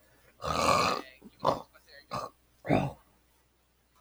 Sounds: Throat clearing